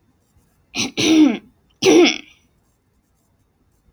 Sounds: Throat clearing